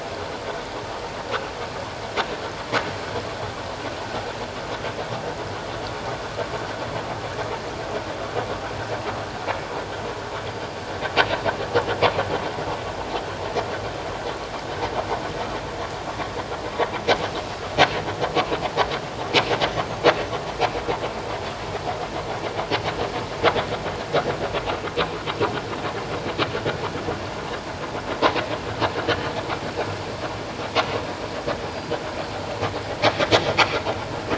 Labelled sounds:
10.5	10.8	vessel noise, 4.7 to 4.8 kHz
31.7	31.9	vessel noise, 4.7 to 4.9 kHz

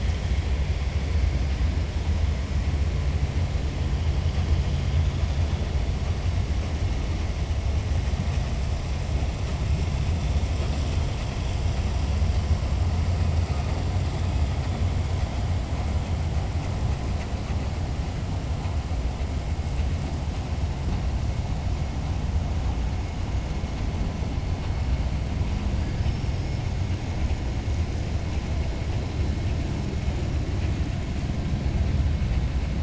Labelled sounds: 25.9	26.6	killer whale, 4.7 to 5.6 kHz

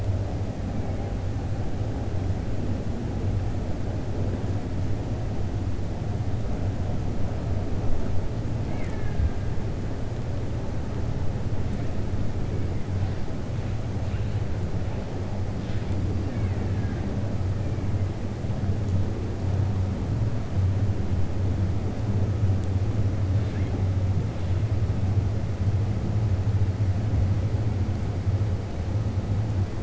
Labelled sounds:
8.6	9.4	killer whale, Bigg's (transient), 0.90 to 3.8 kHz
16.2	17.0	killer whale, Bigg's (transient), 1.1 to 2.8 kHz

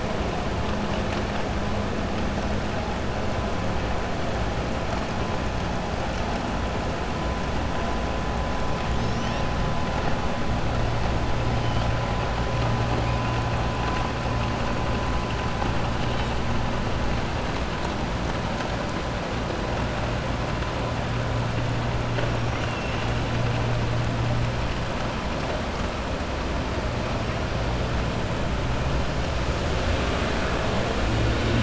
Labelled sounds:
22.4	23.2	killer whale, 1.3 to 4.3 kHz

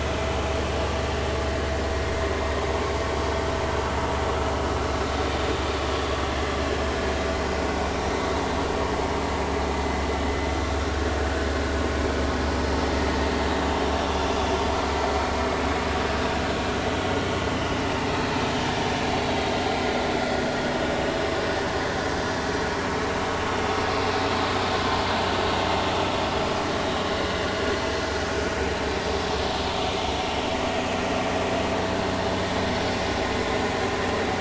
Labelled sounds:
5.9	6.1	vessel noise, 3.2 to 3.5 kHz

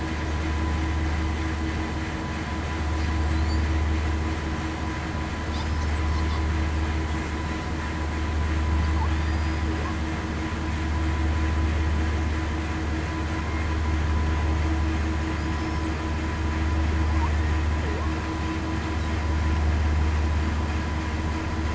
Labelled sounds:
5.5	5.9	killer whale, southern resident, 4.8 to 5.3 kHz
9.2	9.7	killer whale, southern resident, 4.7 to 5.0 kHz

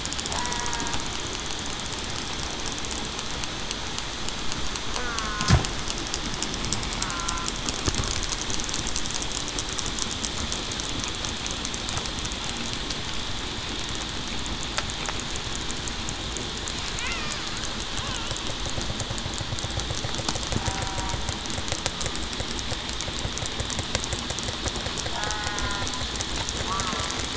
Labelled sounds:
0.4	0.9	killer whale, southern resident, 0.91 to 2.0 kHz
5.0	5.5	killer whale, southern resident, 1.2 to 1.5 kHz
7.1	7.5	killer whale, southern resident, 0.98 to 1.4 kHz
20.8	21.2	killer whale, southern resident, 0.91 to 0.98 kHz
25.5	25.8	killer whale, southern resident, 0.98 to 1.1 kHz

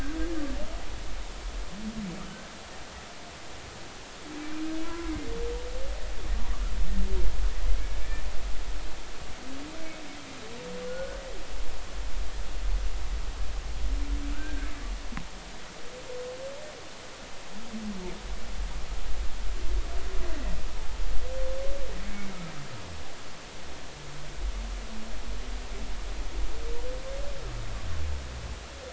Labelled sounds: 4.8	5.1	humpback whale, 0.96 to 1.4 kHz
8.0	8.2	humpback whale, 2.2 to 2.4 kHz
10.9	11.2	humpback whale, 1.4 to 1.6 kHz
14.3	14.7	humpback whale, 1.3 to 1.8 kHz

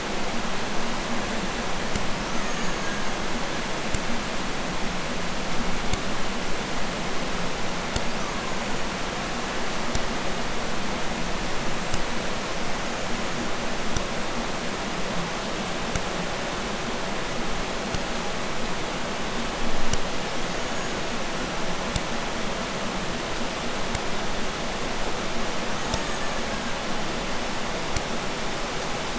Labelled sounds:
2.0	3.4	killer whale, Bigg's (transient), 0.76 to 7.4 kHz
8.0	9.4	killer whale, Bigg's (transient), 0.64 to 7.3 kHz
12.6	13.5	killer whale, Bigg's (transient), 5.9 to 7.2 kHz
20.2	21.3	killer whale, Bigg's (transient), 0.74 to 7.0 kHz
25.6	27.0	killer whale, Bigg's (transient), 0.54 to 8.0 kHz

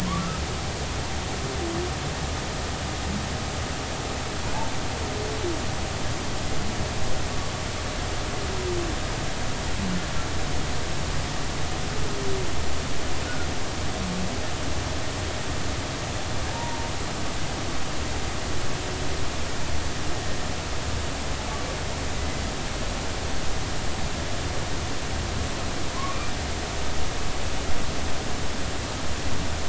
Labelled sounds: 13.2	13.5	humpback whale, 1.3 to 1.5 kHz
16.5	16.9	humpback whale, 0.86 to 0.99 kHz
22.1	22.4	humpback whale, 2.0 to 2.1 kHz
26.0	26.3	humpback whale, 0.96 to 1.3 kHz

